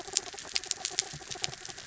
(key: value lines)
label: anthrophony, mechanical
recorder: SoundTrap 300